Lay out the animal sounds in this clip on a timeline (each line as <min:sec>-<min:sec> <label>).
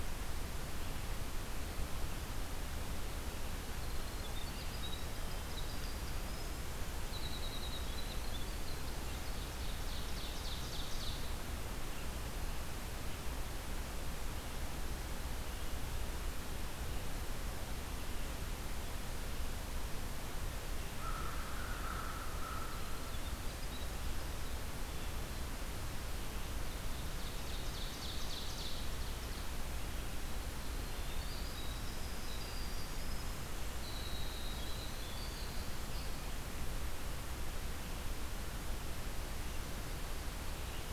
0:03.4-0:09.1 Winter Wren (Troglodytes hiemalis)
0:08.7-0:11.4 Ovenbird (Seiurus aurocapilla)
0:20.9-0:23.0 American Crow (Corvus brachyrhynchos)
0:22.4-0:24.4 Winter Wren (Troglodytes hiemalis)
0:26.9-0:29.0 Ovenbird (Seiurus aurocapilla)
0:30.6-0:36.5 Winter Wren (Troglodytes hiemalis)